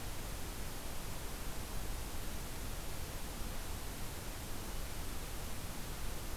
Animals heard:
forest ambience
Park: Acadia National Park